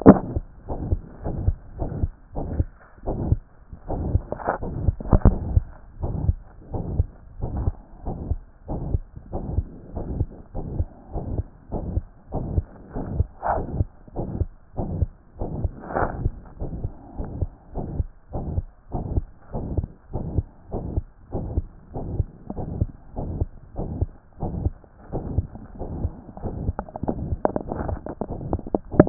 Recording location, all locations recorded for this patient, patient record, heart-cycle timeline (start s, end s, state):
aortic valve (AV)
aortic valve (AV)+pulmonary valve (PV)+tricuspid valve (TV)+mitral valve (MV)
#Age: Child
#Sex: Male
#Height: 126.0 cm
#Weight: 30.7 kg
#Pregnancy status: False
#Murmur: Present
#Murmur locations: aortic valve (AV)+mitral valve (MV)+pulmonary valve (PV)+tricuspid valve (TV)
#Most audible location: pulmonary valve (PV)
#Systolic murmur timing: Holosystolic
#Systolic murmur shape: Plateau
#Systolic murmur grading: III/VI or higher
#Systolic murmur pitch: Medium
#Systolic murmur quality: Harsh
#Diastolic murmur timing: nan
#Diastolic murmur shape: nan
#Diastolic murmur grading: nan
#Diastolic murmur pitch: nan
#Diastolic murmur quality: nan
#Outcome: Abnormal
#Campaign: 2014 screening campaign
0.00	6.02	unannotated
6.02	6.14	S1
6.14	6.24	systole
6.24	6.36	S2
6.36	6.72	diastole
6.72	6.84	S1
6.84	6.96	systole
6.96	7.06	S2
7.06	7.44	diastole
7.44	7.52	S1
7.52	7.62	systole
7.62	7.74	S2
7.74	8.06	diastole
8.06	8.16	S1
8.16	8.28	systole
8.28	8.38	S2
8.38	8.70	diastole
8.70	8.80	S1
8.80	8.92	systole
8.92	9.02	S2
9.02	9.34	diastole
9.34	9.42	S1
9.42	9.54	systole
9.54	9.66	S2
9.66	9.96	diastole
9.96	10.06	S1
10.06	10.16	systole
10.16	10.28	S2
10.28	10.56	diastole
10.56	10.66	S1
10.66	10.76	systole
10.76	10.88	S2
10.88	11.14	diastole
11.14	11.24	S1
11.24	11.34	systole
11.34	11.46	S2
11.46	11.72	diastole
11.72	11.82	S1
11.82	11.94	systole
11.94	12.04	S2
12.04	12.34	diastole
12.34	12.44	S1
12.44	12.54	systole
12.54	12.66	S2
12.66	12.94	diastole
12.94	13.06	S1
13.06	13.16	systole
13.16	13.26	S2
13.26	13.54	diastole
13.54	13.64	S1
13.64	13.76	systole
13.76	13.88	S2
13.88	14.16	diastole
14.16	14.28	S1
14.28	14.38	systole
14.38	14.48	S2
14.48	14.78	diastole
14.78	14.90	S1
14.90	14.98	systole
14.98	15.10	S2
15.10	15.40	diastole
15.40	15.50	S1
15.50	15.60	systole
15.60	15.70	S2
15.70	15.98	diastole
15.98	16.08	S1
16.08	16.22	systole
16.22	16.34	S2
16.34	16.62	diastole
16.62	16.70	S1
16.70	16.82	systole
16.82	16.92	S2
16.92	17.16	diastole
17.16	17.28	S1
17.28	17.40	systole
17.40	17.50	S2
17.50	17.76	diastole
17.76	17.86	S1
17.86	17.96	systole
17.96	18.08	S2
18.08	18.34	diastole
18.34	18.44	S1
18.44	18.54	systole
18.54	18.66	S2
18.66	18.94	diastole
18.94	19.04	S1
19.04	19.14	systole
19.14	19.24	S2
19.24	19.54	diastole
19.54	19.66	S1
19.66	19.76	systole
19.76	19.86	S2
19.86	20.14	diastole
20.14	20.24	S1
20.24	20.36	systole
20.36	20.46	S2
20.46	20.72	diastole
20.72	20.84	S1
20.84	20.94	systole
20.94	21.04	S2
21.04	21.34	diastole
21.34	21.46	S1
21.46	21.56	systole
21.56	21.66	S2
21.66	21.94	diastole
21.94	22.06	S1
22.06	22.16	systole
22.16	22.26	S2
22.26	22.58	diastole
22.58	22.68	S1
22.68	22.80	systole
22.80	22.90	S2
22.90	23.18	diastole
23.18	23.30	S1
23.30	23.40	systole
23.40	23.48	S2
23.48	23.76	diastole
23.76	23.88	S1
23.88	24.00	systole
24.00	24.10	S2
24.10	24.42	diastole
24.42	24.52	S1
24.52	24.62	systole
24.62	24.74	S2
24.74	25.12	diastole
25.12	25.24	S1
25.24	25.36	systole
25.36	25.46	S2
25.46	25.80	diastole
25.80	25.88	S1
25.88	26.02	systole
26.02	26.12	S2
26.12	26.43	diastole
26.43	29.09	unannotated